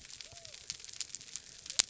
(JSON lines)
{"label": "biophony", "recorder": "SoundTrap 300"}